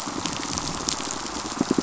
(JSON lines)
{"label": "biophony, pulse", "recorder": "SoundTrap 500"}